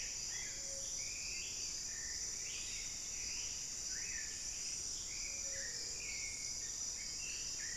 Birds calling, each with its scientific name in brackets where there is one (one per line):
Black-billed Thrush (Turdus ignobilis)
Plumbeous Antbird (Myrmelastes hyperythrus)